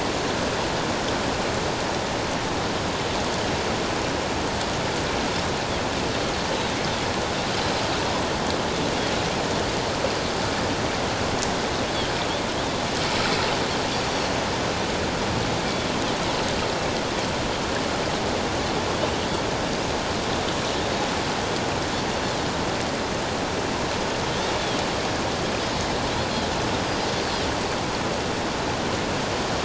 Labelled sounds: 26.8	27.1	Pacific white-sided dolphin, 4.7 to 5.0 kHz

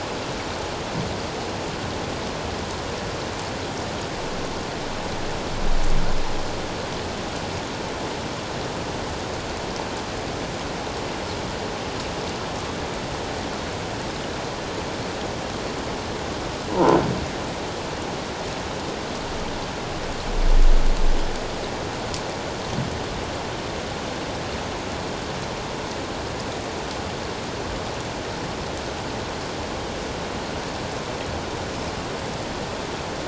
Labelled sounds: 16.7	17.0	croaking sound likely from a nearby submerged object, 0.84 to 1.1 kHz

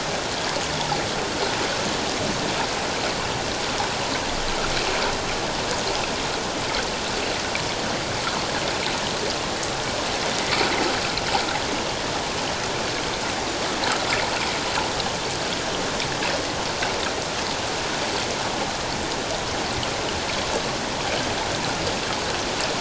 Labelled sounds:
10.4	10.7	water noise, 1.9 to 2.4 kHz

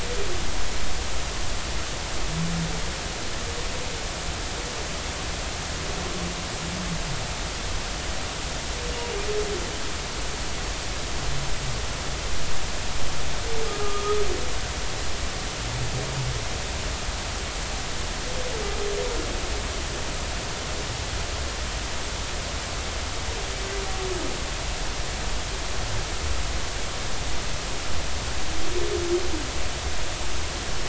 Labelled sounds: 13.7	14.2	humpback whale, 1.2 to 1.3 kHz

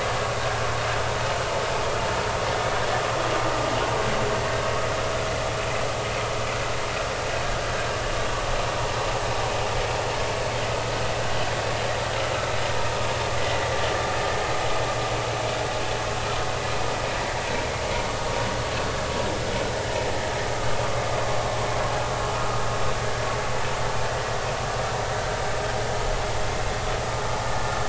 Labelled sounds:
13.4	13.6	vessel noise, 1.9 to 2.1 kHz

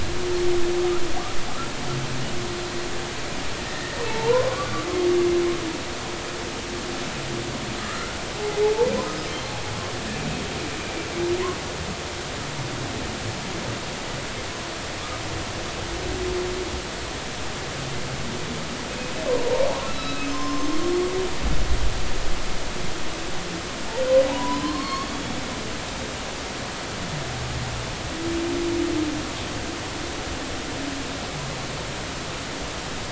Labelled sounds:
3.6	4.9	humpback whale, 0.80 to 1.9 kHz
7.8	8.2	humpback whale, 1.2 to 1.5 kHz
19.3	20.7	humpback whale, 0.90 to 4.0 kHz
24.3	25.4	humpback whale, 0.80 to 4.5 kHz

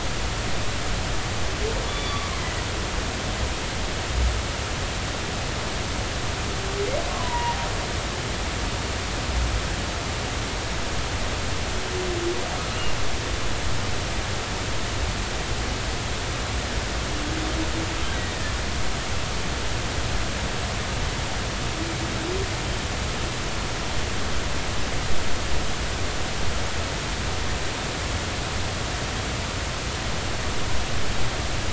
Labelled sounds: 1.9	2.4	humpback whale, 1.0 to 3.5 kHz
7.1	7.6	humpback whale, 0.90 to 2.0 kHz

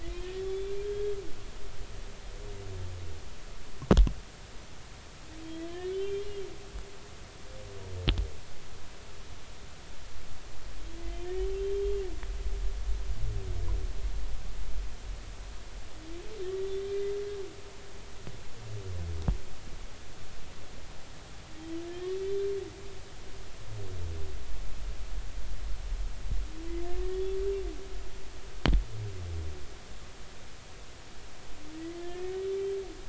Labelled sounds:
0.1	1.2	humpback whale, 1.6 to 3.6 kHz
5.4	6.3	humpback whale, 3.0 to 3.6 kHz
11.0	12.0	humpback whale, 2.0 to 3.3 kHz
16.4	16.7	humpback whale, 1.8 to 2.0 kHz
21.8	22.4	humpback whale, 1.6 to 3.6 kHz
27.1	27.4	humpback whale, 3.3 to 3.5 kHz
31.7	32.5	humpback whale, 1.7 to 2.1 kHz

